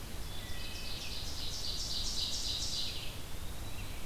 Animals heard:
Wood Thrush (Hylocichla mustelina), Eastern Wood-Pewee (Contopus virens), Ovenbird (Seiurus aurocapilla)

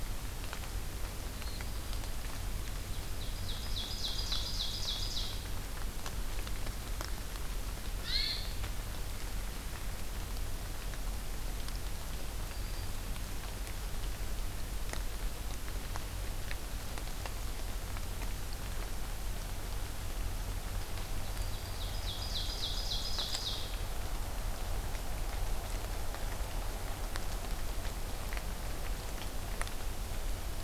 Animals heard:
Black-throated Green Warbler (Setophaga virens), Ovenbird (Seiurus aurocapilla), Hermit Thrush (Catharus guttatus)

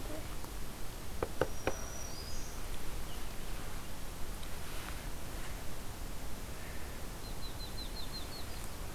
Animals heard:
Yellow-rumped Warbler (Setophaga coronata), Black-throated Green Warbler (Setophaga virens)

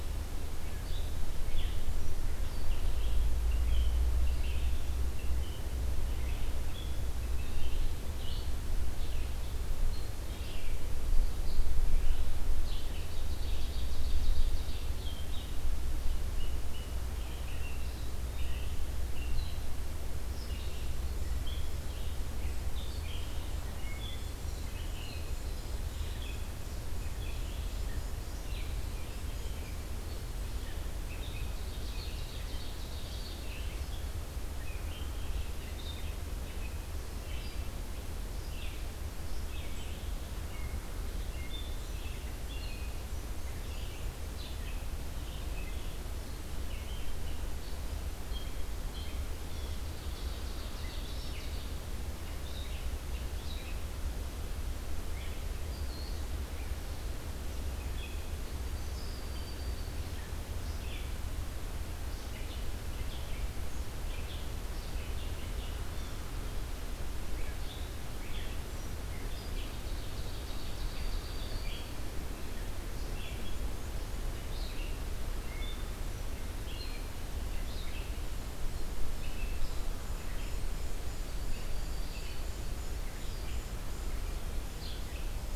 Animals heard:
Red-eyed Vireo (Vireo olivaceus), Black-throated Green Warbler (Setophaga virens), Ovenbird (Seiurus aurocapilla)

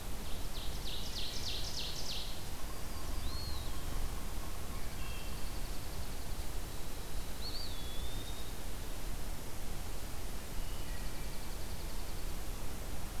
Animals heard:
Eastern Wood-Pewee (Contopus virens), Ovenbird (Seiurus aurocapilla), Wood Thrush (Hylocichla mustelina), Dark-eyed Junco (Junco hyemalis)

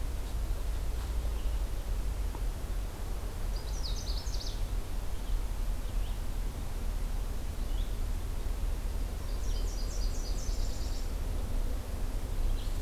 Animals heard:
Canada Warbler (Cardellina canadensis), Red-eyed Vireo (Vireo olivaceus), Nashville Warbler (Leiothlypis ruficapilla)

